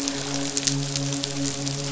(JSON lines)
{"label": "biophony, midshipman", "recorder": "SoundTrap 500"}